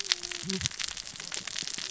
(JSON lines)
{"label": "biophony, cascading saw", "recorder": "SoundTrap 600 or HydroMoth"}